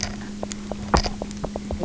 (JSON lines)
{"label": "anthrophony, boat engine", "recorder": "SoundTrap 300"}
{"label": "biophony, knock croak", "recorder": "SoundTrap 300"}